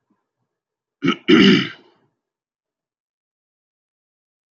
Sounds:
Throat clearing